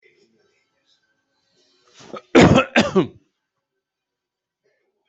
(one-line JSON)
{"expert_labels": [{"quality": "good", "cough_type": "dry", "dyspnea": false, "wheezing": false, "stridor": false, "choking": false, "congestion": false, "nothing": true, "diagnosis": "healthy cough", "severity": "pseudocough/healthy cough"}]}